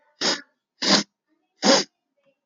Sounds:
Sniff